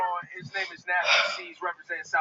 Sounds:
Sigh